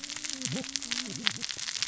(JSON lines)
{"label": "biophony, cascading saw", "recorder": "SoundTrap 600 or HydroMoth"}